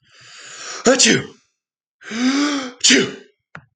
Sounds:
Sneeze